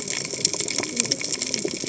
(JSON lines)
{"label": "biophony, cascading saw", "recorder": "HydroMoth"}